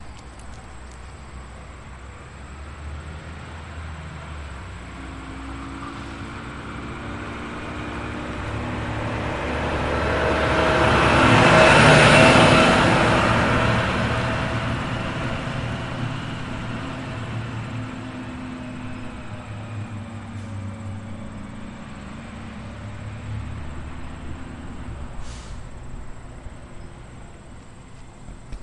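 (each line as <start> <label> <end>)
0.0 Multiple crickets chirp repeatedly in an outdoor setting. 28.6
0.4 The Doppler effect of a large internal combustion engine vehicle passing slowly on pavement. 28.5
25.1 Air pressure hisses loudly as it releases from a gear shift. 25.8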